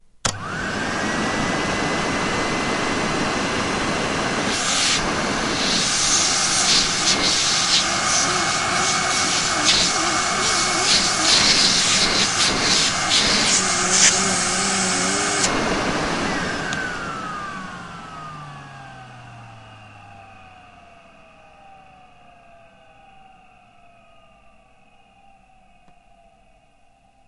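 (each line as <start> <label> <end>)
0.2 A vacuum cleaner is switched on. 4.6
4.6 A vacuum cleaner is sucking. 15.5
15.7 A vacuum cleaner turns off and becomes silent. 19.2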